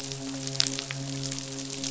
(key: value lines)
label: biophony, midshipman
recorder: SoundTrap 500